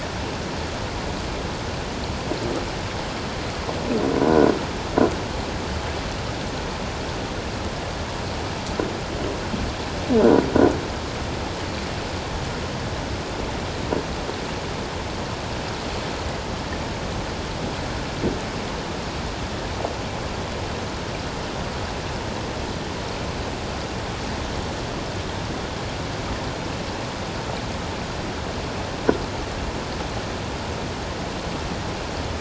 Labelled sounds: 10.2	10.5	croaking sound likely from a nearby submerged object, 1.4 to 1.5 kHz

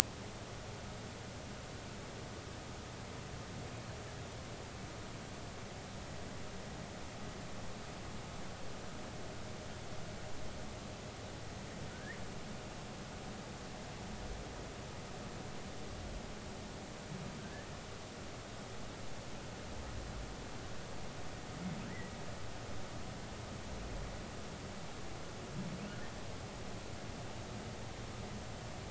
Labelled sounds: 11.9	12.2	humpback whale, 1.4 to 2.2 kHz

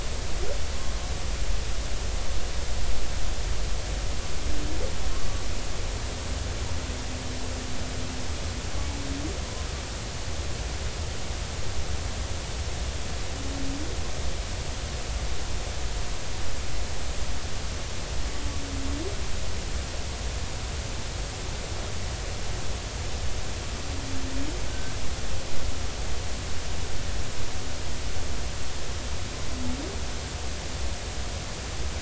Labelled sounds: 5.1	5.4	humpback whale, 1.0 to 1.2 kHz
24.7	24.9	humpback whale, 1.5 to 1.6 kHz

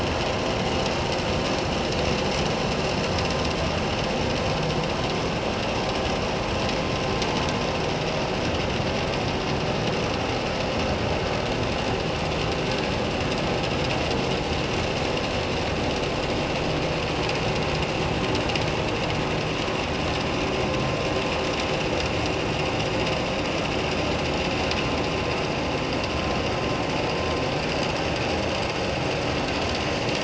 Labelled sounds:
12.7	13.0	vessel noise, 1.6 to 1.7 kHz

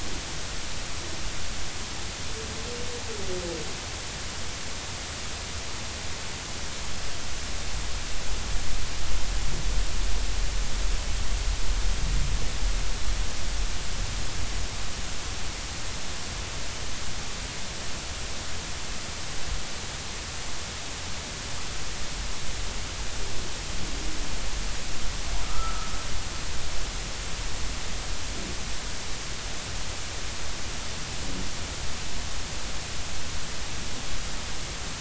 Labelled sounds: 25.4	25.9	humpback whale, 1.2 to 1.4 kHz

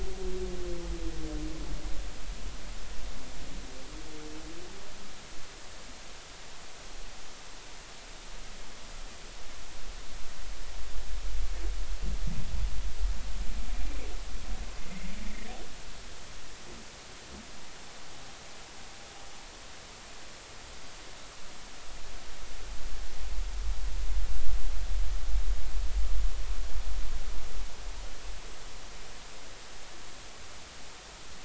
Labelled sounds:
14.8	15.5	humpback whale, 1.8 to 2.2 kHz

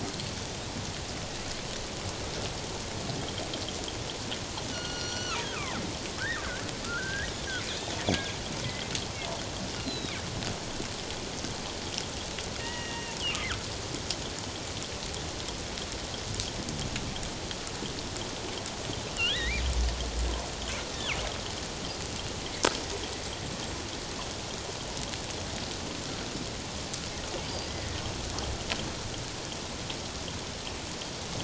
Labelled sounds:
4.7	5.8	killer whale, northern resident, G clan, 0.97 to 5.9 kHz
6.9	7.3	killer whale, northern resident, G clan, 1.3 to 2.0 kHz
9.8	10.1	killer whale, northern resident, G clan, 3.7 to 4.3 kHz
12.6	13.2	killer whale, northern resident, G clan, 1.8 to 2.9 kHz
19.1	19.6	killer whale, northern resident, G clan, 1.6 to 4.0 kHz
27.5	28.0	killer whale, northern resident, G clan, 1.8 to 4.9 kHz

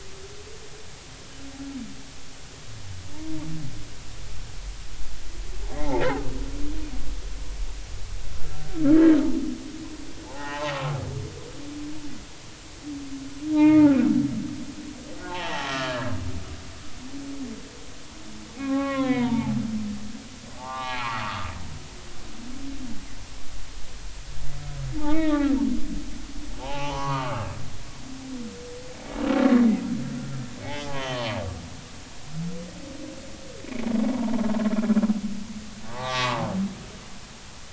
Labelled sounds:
5.8	6.0	humpback whale, 0.80 to 0.96 kHz
10.3	11.0	humpback whale, 0.80 to 1.9 kHz
13.5	14.0	humpback whale, 0.80 to 3.5 kHz
15.3	16.1	humpback whale, 0.80 to 3.5 kHz
18.6	19.6	humpback whale, 0.80 to 3.6 kHz
20.6	22.0	humpback whale, 0.80 to 4.3 kHz
25.0	25.6	humpback whale, 0.80 to 3.9 kHz
26.6	27.5	humpback whale, 0.80 to 3.1 kHz
30.6	31.3	humpback whale, 0.80 to 3.2 kHz
35.9	36.4	humpback whale, 0.80 to 2.0 kHz

